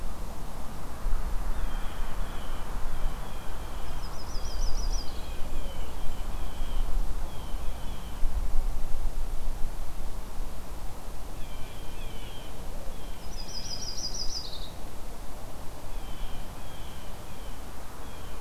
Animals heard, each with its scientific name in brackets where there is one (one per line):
Yellow-rumped Warbler (Setophaga coronata)
Blue Jay (Cyanocitta cristata)
Golden-crowned Kinglet (Regulus satrapa)